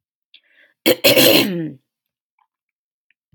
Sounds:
Throat clearing